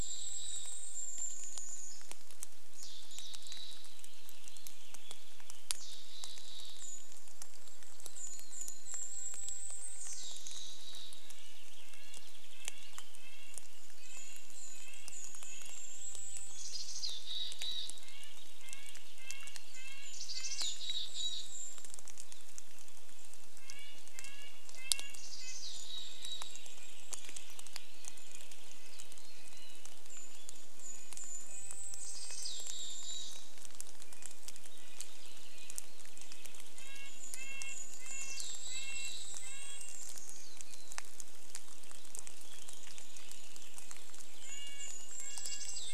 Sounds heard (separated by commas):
warbler song, Red-breasted Nuthatch song, Mountain Chickadee call, rain, Golden-crowned Kinglet song, Purple Finch song